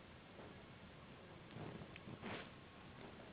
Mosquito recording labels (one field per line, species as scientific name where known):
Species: Anopheles gambiae s.s.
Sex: female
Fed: unfed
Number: one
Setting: insect culture